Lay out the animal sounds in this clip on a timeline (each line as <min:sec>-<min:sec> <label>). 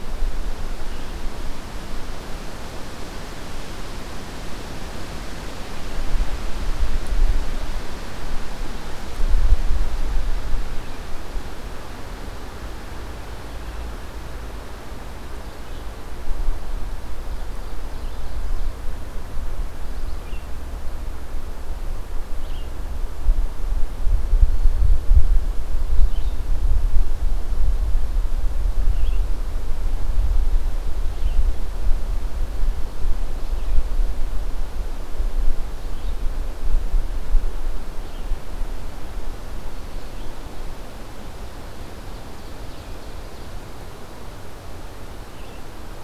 0:00.0-0:03.8 Red-eyed Vireo (Vireo olivaceus)
0:15.0-0:46.0 Red-eyed Vireo (Vireo olivaceus)
0:16.8-0:18.8 Ovenbird (Seiurus aurocapilla)
0:39.2-0:40.5 Black-throated Green Warbler (Setophaga virens)
0:41.9-0:43.6 Ovenbird (Seiurus aurocapilla)